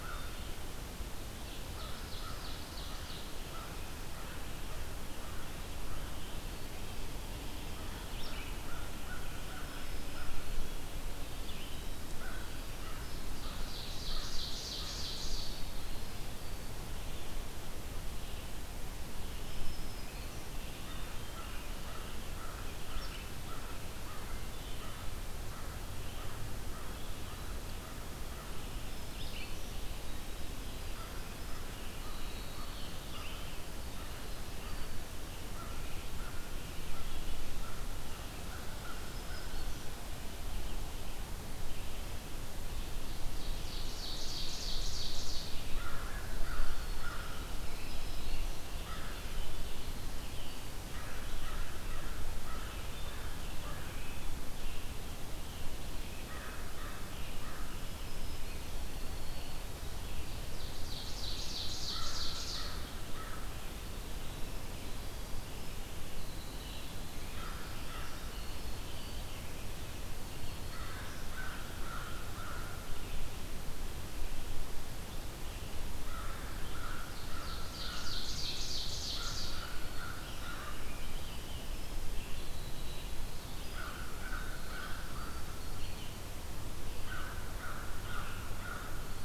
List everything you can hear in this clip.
American Crow, Ovenbird, Red-eyed Vireo, Black-throated Green Warbler, Winter Wren